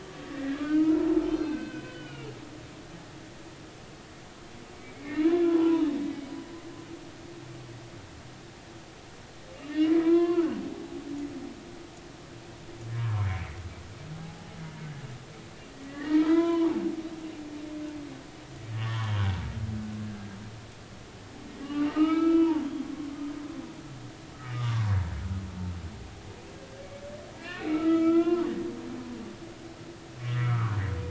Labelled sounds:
0.0	2.4	humpback whale, 0.90 to 4.8 kHz
4.9	6.0	humpback whale, 0.83 to 3.8 kHz
9.7	10.6	humpback whale, 0.93 to 4.6 kHz
13.0	14.5	humpback whale, 0.80 to 1.3 kHz
15.9	16.8	humpback whale, 0.86 to 3.5 kHz
18.8	19.2	humpback whale, 0.93 to 1.2 kHz
21.6	22.6	humpback whale, 0.80 to 3.6 kHz
24.5	24.9	humpback whale, 0.93 to 1.3 kHz
27.3	28.5	humpback whale, 0.86 to 3.6 kHz
30.2	30.8	humpback whale, 0.99 to 2.3 kHz

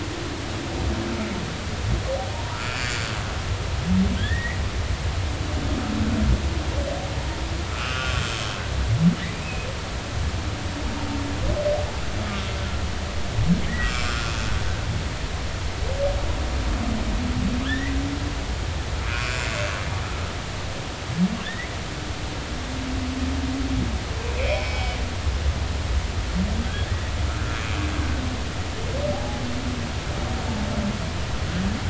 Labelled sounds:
2.5	3.1	humpback whale, 1.2 to 4.6 kHz
4.2	4.6	humpback whale, 1.5 to 2.3 kHz
7.7	8.3	humpback whale, 1.1 to 3.3 kHz
9.4	9.7	humpback whale, 2.4 to 2.7 kHz
13.7	14.3	humpback whale, 1.2 to 7.5 kHz
17.6	17.9	humpback whale, 1.6 to 2.0 kHz
19.1	19.4	humpback whale, 1.4 to 2.6 kHz
21.4	21.7	humpback whale, 1.5 to 2.0 kHz
24.3	25.0	humpback whale, 2.0 to 2.7 kHz
26.6	27.1	humpback whale, 1.5 to 2.0 kHz
29.1	29.4	humpback whale, 0.80 to 0.90 kHz

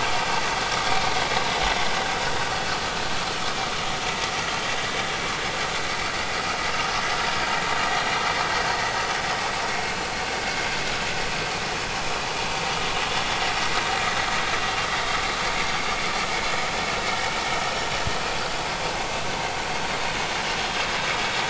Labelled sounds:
9.7	9.9	vessel noise, 2.1 to 2.2 kHz

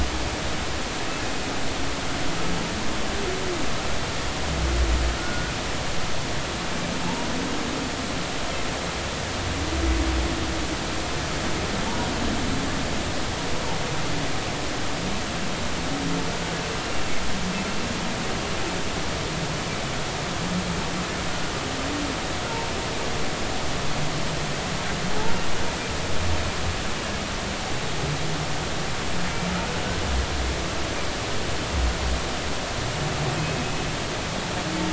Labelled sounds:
5.2	5.5	humpback whale, 1.4 to 1.5 kHz
7.0	7.3	humpback whale, 0.83 to 0.99 kHz

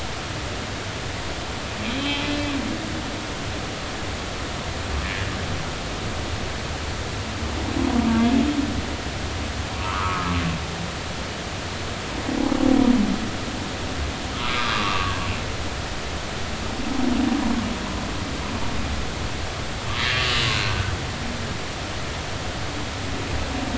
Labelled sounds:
1.9	2.2	humpback whale, 3.0 to 3.4 kHz
8.1	8.4	humpback whale, 1.5 to 1.7 kHz
9.8	10.3	humpback whale, 0.90 to 1.5 kHz
14.5	15.2	humpback whale, 0.96 to 5.0 kHz
20.7	20.9	humpback whale, 1.3 to 1.6 kHz

